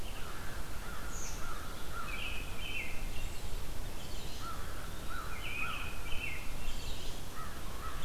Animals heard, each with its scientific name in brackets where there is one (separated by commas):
American Robin (Turdus migratorius), Eastern Wood-Pewee (Contopus virens), American Crow (Corvus brachyrhynchos)